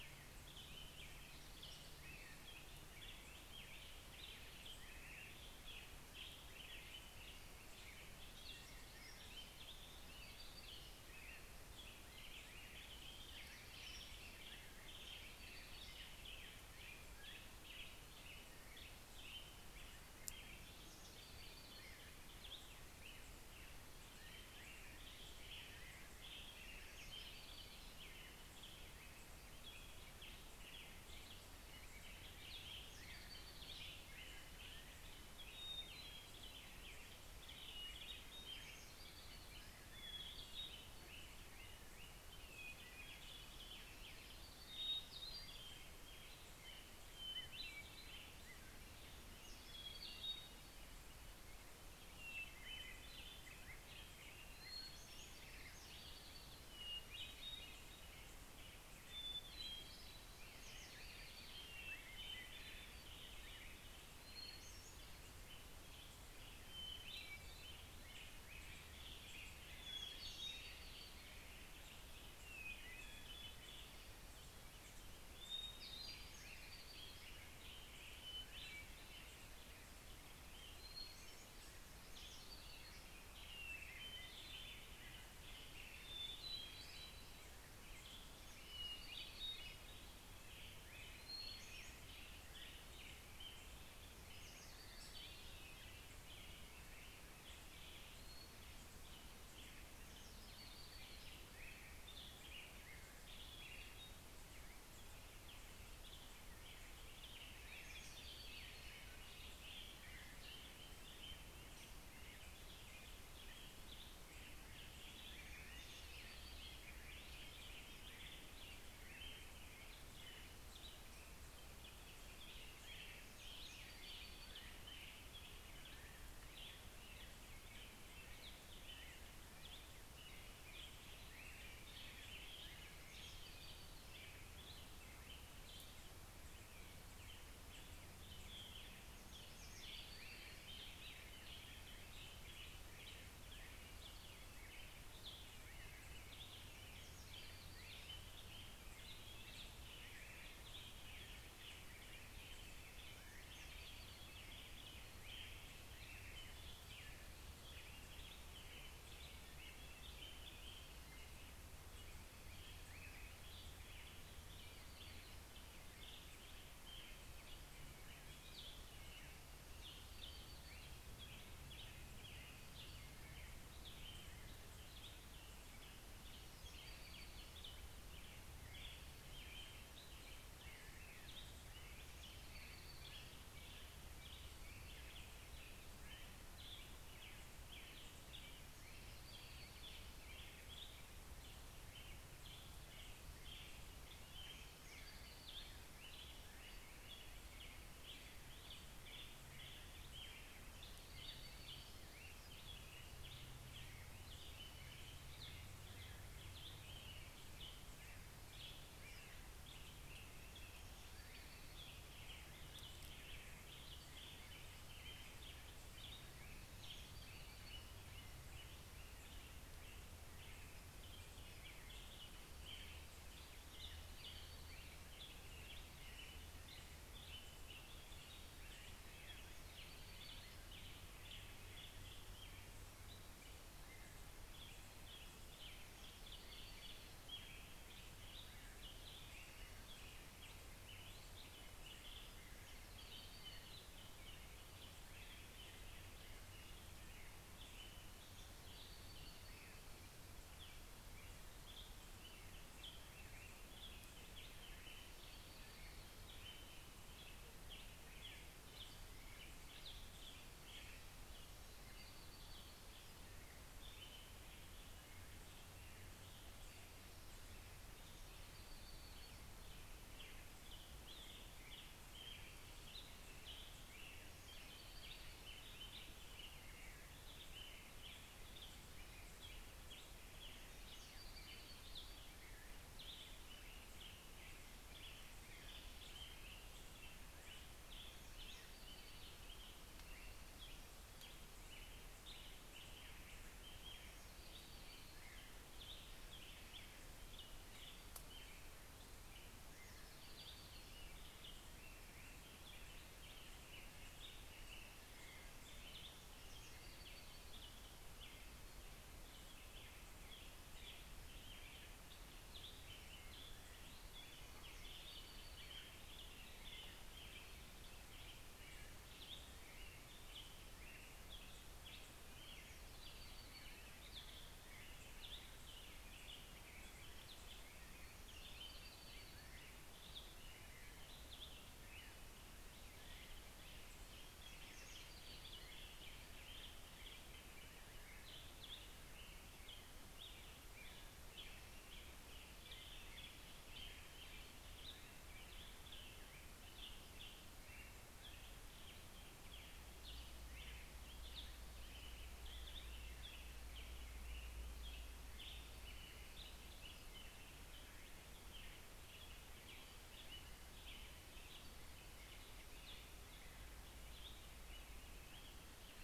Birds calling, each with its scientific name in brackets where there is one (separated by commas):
Black-headed Grosbeak (Pheucticus melanocephalus), American Robin (Turdus migratorius), Hermit Warbler (Setophaga occidentalis), Hermit Thrush (Catharus guttatus)